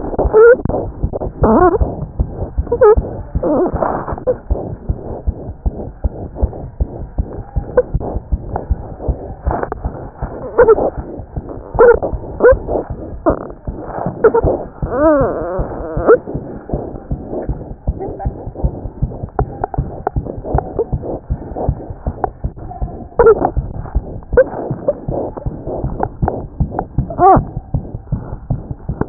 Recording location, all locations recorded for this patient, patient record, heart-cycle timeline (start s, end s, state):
aortic valve (AV)
aortic valve (AV)+mitral valve (MV)
#Age: Infant
#Sex: Female
#Height: 56.0 cm
#Weight: 5.2 kg
#Pregnancy status: False
#Murmur: Present
#Murmur locations: aortic valve (AV)+mitral valve (MV)
#Most audible location: mitral valve (MV)
#Systolic murmur timing: Holosystolic
#Systolic murmur shape: Plateau
#Systolic murmur grading: I/VI
#Systolic murmur pitch: High
#Systolic murmur quality: Harsh
#Diastolic murmur timing: nan
#Diastolic murmur shape: nan
#Diastolic murmur grading: nan
#Diastolic murmur pitch: nan
#Diastolic murmur quality: nan
#Outcome: Abnormal
#Campaign: 2014 screening campaign
0.00	4.50	unannotated
4.50	4.58	S1
4.58	4.69	systole
4.69	4.76	S2
4.76	4.88	diastole
4.88	4.93	S1
4.93	5.03	systole
5.03	5.14	S2
5.14	5.26	diastole
5.26	5.34	S1
5.34	5.46	systole
5.46	5.52	S2
5.52	5.66	diastole
5.66	5.76	S1
5.76	5.84	systole
5.84	5.90	S2
5.90	6.04	diastole
6.04	6.12	S1
6.12	6.22	systole
6.22	6.26	S2
6.26	6.40	diastole
6.40	6.52	S1
6.52	6.60	systole
6.60	6.68	S2
6.68	6.80	diastole
6.80	6.88	S1
6.88	7.00	systole
7.00	7.06	S2
7.06	7.18	diastole
7.18	7.28	S1
7.28	7.36	systole
7.36	7.44	S2
7.44	7.56	diastole
7.56	7.66	S1
7.66	7.76	systole
7.76	7.84	S2
7.84	7.94	diastole
7.94	8.04	S1
8.04	8.14	systole
8.14	8.20	S2
8.20	8.32	diastole
8.32	8.42	S1
8.42	8.54	systole
8.54	8.58	S2
8.58	8.70	diastole
8.70	8.78	S1
8.78	8.89	systole
8.89	8.97	S2
8.97	9.06	diastole
9.06	9.15	S1
9.15	29.09	unannotated